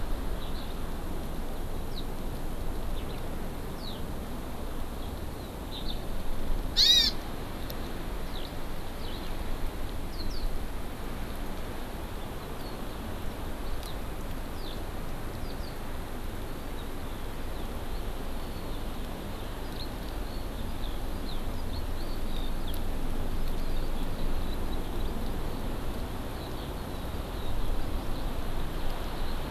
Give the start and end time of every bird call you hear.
[0.42, 0.72] Eurasian Skylark (Alauda arvensis)
[1.93, 2.02] Eurasian Skylark (Alauda arvensis)
[2.92, 3.23] Eurasian Skylark (Alauda arvensis)
[3.73, 4.03] Eurasian Skylark (Alauda arvensis)
[5.72, 5.92] Eurasian Skylark (Alauda arvensis)
[6.72, 7.12] Hawaii Amakihi (Chlorodrepanis virens)
[8.22, 8.53] Eurasian Skylark (Alauda arvensis)
[8.93, 9.32] Eurasian Skylark (Alauda arvensis)
[10.03, 10.53] Eurasian Skylark (Alauda arvensis)
[14.53, 14.82] Eurasian Skylark (Alauda arvensis)
[15.43, 15.72] Eurasian Skylark (Alauda arvensis)
[19.62, 22.73] Eurasian Skylark (Alauda arvensis)
[23.52, 23.82] Hawaii Amakihi (Chlorodrepanis virens)
[26.32, 28.23] Eurasian Skylark (Alauda arvensis)

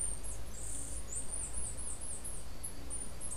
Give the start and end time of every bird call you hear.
[0.00, 3.36] Chestnut-capped Brushfinch (Arremon brunneinucha)

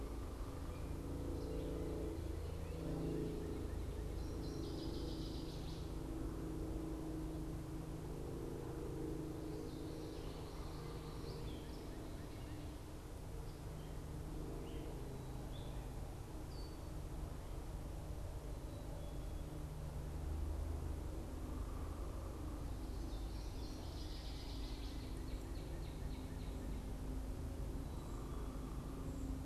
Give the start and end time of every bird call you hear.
[0.00, 3.86] Gray Catbird (Dumetella carolinensis)
[2.36, 4.26] Northern Cardinal (Cardinalis cardinalis)
[3.96, 5.96] Northern Waterthrush (Parkesia noveboracensis)
[9.26, 11.06] Common Yellowthroat (Geothlypis trichas)
[10.96, 11.96] Gray Catbird (Dumetella carolinensis)
[11.26, 12.66] Northern Cardinal (Cardinalis cardinalis)
[14.36, 16.96] Gray Catbird (Dumetella carolinensis)
[21.26, 22.76] unidentified bird
[22.76, 25.16] Northern Waterthrush (Parkesia noveboracensis)
[24.06, 26.96] Northern Cardinal (Cardinalis cardinalis)
[27.56, 29.36] unidentified bird

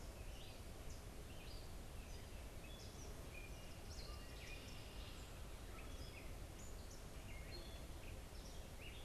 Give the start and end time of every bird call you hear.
[0.00, 9.04] Gray Catbird (Dumetella carolinensis)
[3.93, 5.33] Red-winged Blackbird (Agelaius phoeniceus)
[4.23, 5.03] Eastern Kingbird (Tyrannus tyrannus)

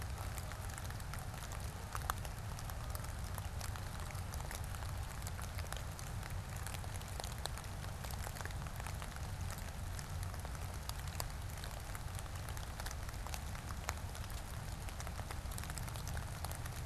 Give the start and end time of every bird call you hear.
[0.00, 2.22] Canada Goose (Branta canadensis)

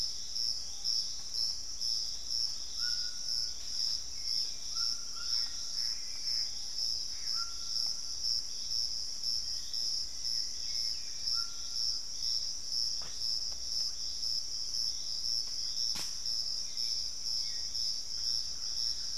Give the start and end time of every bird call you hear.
[0.00, 11.65] Hauxwell's Thrush (Turdus hauxwelli)
[0.00, 19.17] White-throated Toucan (Ramphastos tucanus)
[2.45, 19.17] Piratic Flycatcher (Legatus leucophaius)
[5.05, 7.85] Gray Antbird (Cercomacra cinerascens)
[9.35, 11.55] Black-faced Antthrush (Formicarius analis)
[13.55, 16.55] unidentified bird
[16.05, 16.85] Plumbeous Pigeon (Patagioenas plumbea)
[16.05, 19.17] Hauxwell's Thrush (Turdus hauxwelli)
[18.35, 19.17] Thrush-like Wren (Campylorhynchus turdinus)

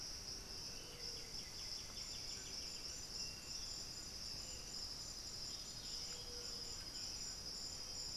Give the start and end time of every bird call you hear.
[0.00, 8.17] Striped Cuckoo (Tapera naevia)
[0.00, 8.17] White-throated Toucan (Ramphastos tucanus)
[0.60, 3.20] White-winged Becard (Pachyramphus polychopterus)
[5.40, 7.40] Buff-throated Saltator (Saltator maximus)

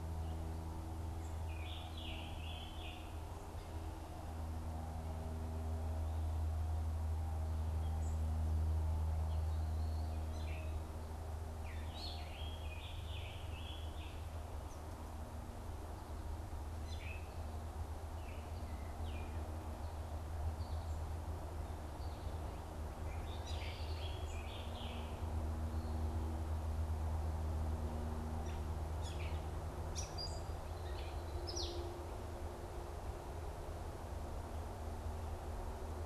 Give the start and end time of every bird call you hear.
[1.28, 3.28] Scarlet Tanager (Piranga olivacea)
[11.68, 14.38] Scarlet Tanager (Piranga olivacea)
[16.58, 17.38] Gray Catbird (Dumetella carolinensis)
[22.98, 25.08] Scarlet Tanager (Piranga olivacea)
[28.28, 31.88] Gray Catbird (Dumetella carolinensis)

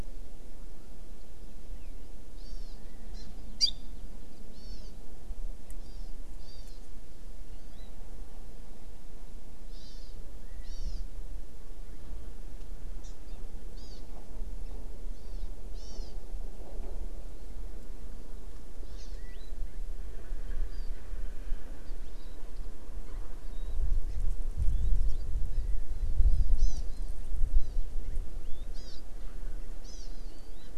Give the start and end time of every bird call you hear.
[2.32, 2.82] Hawaii Amakihi (Chlorodrepanis virens)
[3.12, 3.22] Hawaii Amakihi (Chlorodrepanis virens)
[3.62, 3.92] Hawaii Amakihi (Chlorodrepanis virens)
[4.52, 5.02] Hawaii Amakihi (Chlorodrepanis virens)
[5.82, 6.12] Hawaii Amakihi (Chlorodrepanis virens)
[6.42, 6.72] Hawaii Amakihi (Chlorodrepanis virens)
[9.72, 10.12] Hawaii Amakihi (Chlorodrepanis virens)
[10.62, 11.02] Hawaii Amakihi (Chlorodrepanis virens)
[13.02, 13.12] Hawaii Amakihi (Chlorodrepanis virens)
[13.72, 14.02] Hawaii Amakihi (Chlorodrepanis virens)
[15.12, 16.12] Hawaii Amakihi (Chlorodrepanis virens)
[18.82, 19.12] Hawaii Amakihi (Chlorodrepanis virens)
[23.42, 23.72] Warbling White-eye (Zosterops japonicus)
[25.52, 25.62] Hawaii Amakihi (Chlorodrepanis virens)
[26.22, 27.12] Hawaii Amakihi (Chlorodrepanis virens)
[27.52, 27.72] Hawaii Amakihi (Chlorodrepanis virens)
[28.72, 29.02] Hawaii Amakihi (Chlorodrepanis virens)
[29.82, 30.72] Hawaii Amakihi (Chlorodrepanis virens)

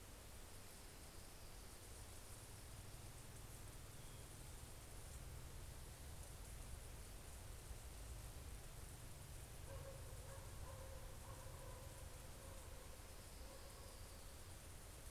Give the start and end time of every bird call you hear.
[0.00, 2.50] Orange-crowned Warbler (Leiothlypis celata)
[12.30, 15.10] Orange-crowned Warbler (Leiothlypis celata)

